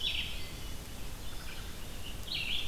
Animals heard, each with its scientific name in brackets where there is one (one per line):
Red-eyed Vireo (Vireo olivaceus)
Wood Thrush (Hylocichla mustelina)